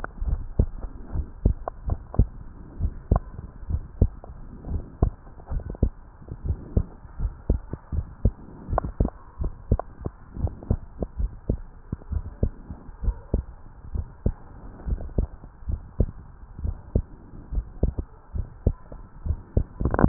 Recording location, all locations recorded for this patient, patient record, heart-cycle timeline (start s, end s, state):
tricuspid valve (TV)
aortic valve (AV)+pulmonary valve (PV)+tricuspid valve (TV)+mitral valve (MV)
#Age: Child
#Sex: Male
#Height: 130.0 cm
#Weight: 28.0 kg
#Pregnancy status: False
#Murmur: Absent
#Murmur locations: nan
#Most audible location: nan
#Systolic murmur timing: nan
#Systolic murmur shape: nan
#Systolic murmur grading: nan
#Systolic murmur pitch: nan
#Systolic murmur quality: nan
#Diastolic murmur timing: nan
#Diastolic murmur shape: nan
#Diastolic murmur grading: nan
#Diastolic murmur pitch: nan
#Diastolic murmur quality: nan
#Outcome: Normal
#Campaign: 2015 screening campaign
0.00	2.30	unannotated
2.30	2.80	diastole
2.80	2.94	S1
2.94	3.10	systole
3.10	3.24	S2
3.24	3.68	diastole
3.68	3.84	S1
3.84	4.00	systole
4.00	4.14	S2
4.14	4.68	diastole
4.68	4.82	S1
4.82	4.98	systole
4.98	5.12	S2
5.12	5.52	diastole
5.52	5.64	S1
5.64	5.78	systole
5.78	5.92	S2
5.92	6.44	diastole
6.44	6.58	S1
6.58	6.72	systole
6.72	6.82	S2
6.82	7.22	diastole
7.22	7.34	S1
7.34	7.46	systole
7.46	7.58	S2
7.58	7.94	diastole
7.94	8.06	S1
8.06	8.20	systole
8.20	8.32	S2
8.32	8.70	diastole
8.70	8.85	S1
8.85	8.97	systole
8.97	9.09	S2
9.09	9.40	diastole
9.40	9.52	S1
9.52	9.70	systole
9.70	9.82	S2
9.82	10.40	diastole
10.40	10.54	S1
10.54	10.68	systole
10.68	10.78	S2
10.78	11.18	diastole
11.18	11.32	S1
11.32	11.48	systole
11.48	11.62	S2
11.62	12.10	diastole
12.10	12.24	S1
12.24	12.42	systole
12.42	12.54	S2
12.54	13.02	diastole
13.02	13.16	S1
13.16	13.30	systole
13.30	13.46	S2
13.46	13.92	diastole
13.92	14.06	S1
14.06	14.22	systole
14.22	14.36	S2
14.36	14.86	diastole
14.86	15.00	S1
15.00	15.16	systole
15.16	15.28	S2
15.28	15.68	diastole
15.68	15.80	S1
15.80	15.96	systole
15.96	16.12	S2
16.12	16.62	diastole
16.62	16.76	S1
16.76	16.92	systole
16.92	17.06	S2
17.06	17.54	diastole
17.54	17.66	S1
17.66	17.82	systole
17.82	17.96	S2
17.96	18.36	diastole
18.36	18.48	S1
18.48	18.62	systole
18.62	18.76	S2
18.76	19.19	diastole
19.19	20.08	unannotated